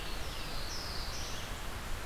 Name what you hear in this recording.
Black-throated Blue Warbler, Red-eyed Vireo